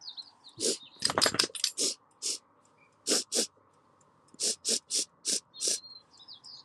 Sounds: Sniff